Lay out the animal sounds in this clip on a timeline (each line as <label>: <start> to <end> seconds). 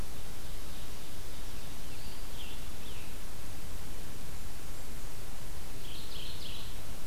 Ovenbird (Seiurus aurocapilla): 0.1 to 1.9 seconds
Scarlet Tanager (Piranga olivacea): 1.5 to 3.6 seconds
Mourning Warbler (Geothlypis philadelphia): 5.8 to 7.0 seconds